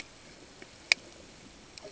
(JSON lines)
{"label": "ambient", "recorder": "HydroMoth"}